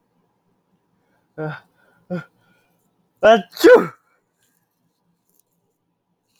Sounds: Sneeze